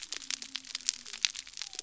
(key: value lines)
label: biophony
recorder: SoundTrap 300